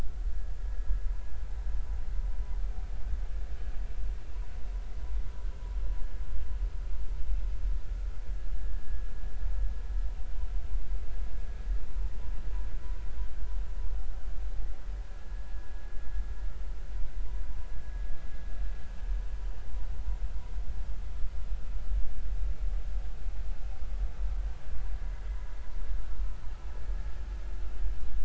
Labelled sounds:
8.6	8.8	vessel noise, 1.6 to 1.8 kHz

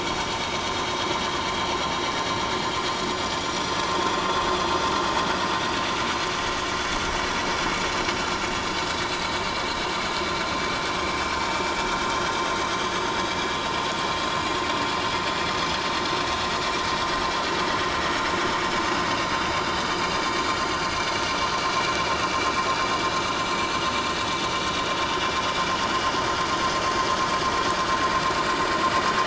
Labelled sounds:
7.8	8.1	vessel noise, 7.0 to 7.2 kHz
20.6	20.9	vessel noise, 4.6 to 4.9 kHz
22.1	22.4	vessel noise, 2.6 to 2.8 kHz
23.4	23.8	vessel noise, 7.4 to 7.6 kHz
26.0	26.3	vessel noise, 3.1 to 3.2 kHz

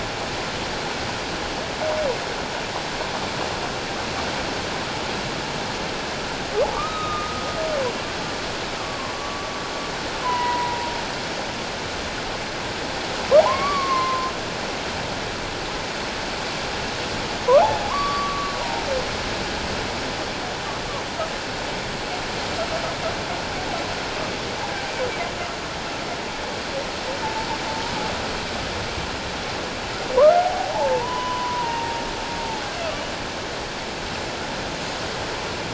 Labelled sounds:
6.7	7.4	humpback whale, 1.1 to 3.9 kHz
8.8	9.5	humpback whale, 0.97 to 1.2 kHz
10.2	10.9	humpback whale, 0.84 to 2.0 kHz
13.4	14.3	humpback whale, 0.78 to 4.6 kHz
17.6	18.8	humpback whale, 0.78 to 1.2 kHz
30.2	32.0	humpback whale, 0.78 to 3.0 kHz

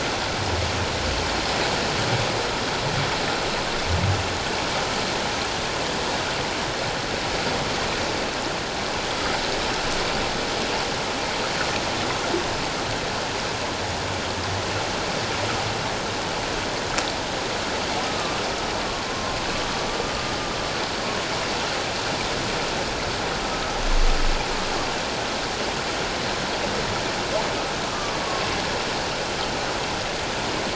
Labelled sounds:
18.1	18.4	humpback whale, 1.1 to 1.3 kHz
18.8	19.4	humpback whale, 1.0 to 1.2 kHz
20.0	20.4	humpback whale, 1.19 to 1.25 kHz
27.9	28.2	humpback whale, 1.1 to 1.3 kHz

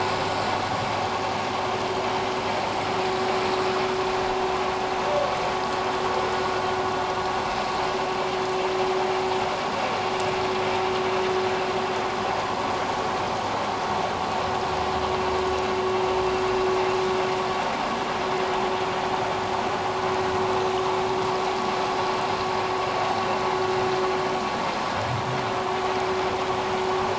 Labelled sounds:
1.2	1.5	vessel noise, 6.5 to 6.7 kHz

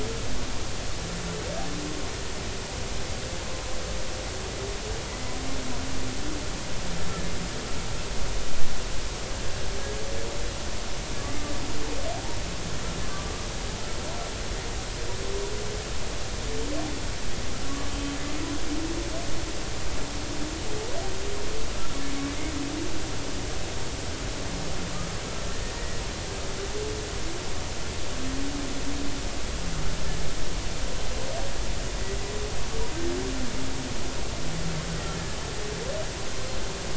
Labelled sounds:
5.1	5.3	humpback whale, 1.9 to 2.1 kHz
17.9	18.2	humpback whale, 3.1 to 3.2 kHz
25.7	26.0	humpback whale, 1.8 to 2.0 kHz
35.1	35.4	humpback whale, 1.7 to 1.8 kHz

